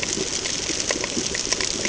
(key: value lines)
label: ambient
recorder: HydroMoth